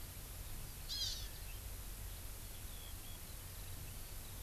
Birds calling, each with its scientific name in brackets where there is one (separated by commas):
Hawaii Amakihi (Chlorodrepanis virens)